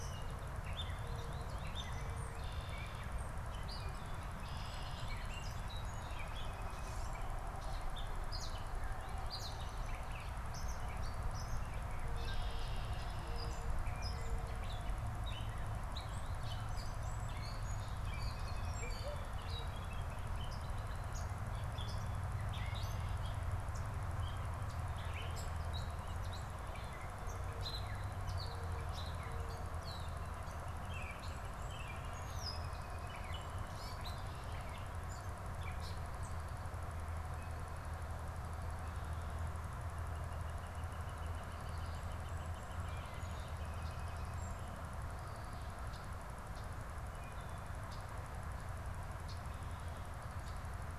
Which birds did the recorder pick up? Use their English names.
Gray Catbird, Red-winged Blackbird, Northern Flicker